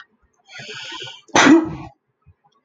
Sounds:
Sneeze